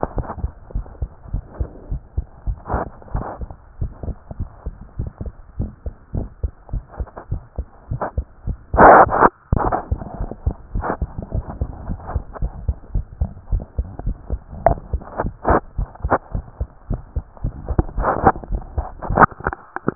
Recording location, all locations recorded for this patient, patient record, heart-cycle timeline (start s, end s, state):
tricuspid valve (TV)
aortic valve (AV)+pulmonary valve (PV)+tricuspid valve (TV)+tricuspid valve (TV)+mitral valve (MV)
#Age: Child
#Sex: Male
#Height: 107.0 cm
#Weight: 18.2 kg
#Pregnancy status: False
#Murmur: Absent
#Murmur locations: nan
#Most audible location: nan
#Systolic murmur timing: nan
#Systolic murmur shape: nan
#Systolic murmur grading: nan
#Systolic murmur pitch: nan
#Systolic murmur quality: nan
#Diastolic murmur timing: nan
#Diastolic murmur shape: nan
#Diastolic murmur grading: nan
#Diastolic murmur pitch: nan
#Diastolic murmur quality: nan
#Outcome: Normal
#Campaign: 2014 screening campaign
0.00	0.16	unannotated
0.16	0.26	S1
0.26	0.42	systole
0.42	0.50	S2
0.50	0.74	diastole
0.74	0.86	S1
0.86	1.00	systole
1.00	1.10	S2
1.10	1.32	diastole
1.32	1.44	S1
1.44	1.58	systole
1.58	1.68	S2
1.68	1.90	diastole
1.90	2.00	S1
2.00	2.16	systole
2.16	2.24	S2
2.24	2.46	diastole
2.46	2.58	S1
2.58	2.72	systole
2.72	2.84	S2
2.84	3.14	diastole
3.14	3.24	S1
3.24	3.40	systole
3.40	3.48	S2
3.48	3.80	diastole
3.80	3.92	S1
3.92	4.06	systole
4.06	4.16	S2
4.16	4.38	diastole
4.38	4.50	S1
4.50	4.66	systole
4.66	4.74	S2
4.74	4.98	diastole
4.98	5.10	S1
5.10	5.22	systole
5.22	5.32	S2
5.32	5.58	diastole
5.58	5.70	S1
5.70	5.84	systole
5.84	5.94	S2
5.94	6.14	diastole
6.14	6.28	S1
6.28	6.42	systole
6.42	6.52	S2
6.52	6.72	diastole
6.72	6.84	S1
6.84	6.98	systole
6.98	7.08	S2
7.08	7.30	diastole
7.30	7.42	S1
7.42	7.58	systole
7.58	7.66	S2
7.66	7.90	diastole
7.90	8.02	S1
8.02	8.16	systole
8.16	8.26	S2
8.26	8.48	diastole
8.48	19.95	unannotated